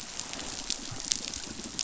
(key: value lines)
label: biophony
recorder: SoundTrap 500